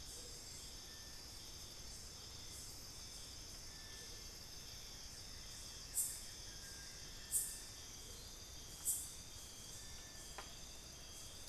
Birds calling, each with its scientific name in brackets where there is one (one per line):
Buff-throated Woodcreeper (Xiphorhynchus guttatus)
Amazonian Motmot (Momotus momota)